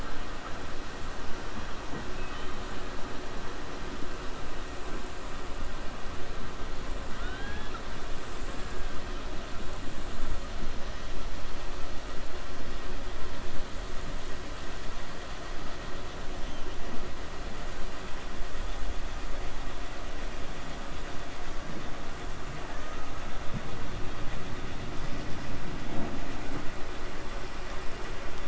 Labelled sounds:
2.1	2.7	killer whale, 1.8 to 3.8 kHz
7.1	7.8	killer whale, 0.77 to 4.1 kHz

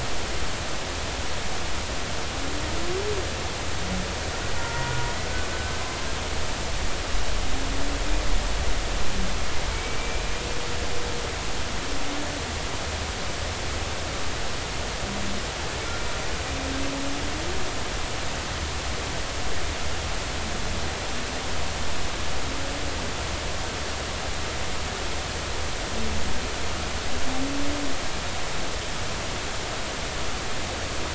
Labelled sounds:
4.6	4.9	humpback whale, 0.90 to 1.4 kHz
9.7	10.3	humpback whale, 2.2 to 2.4 kHz

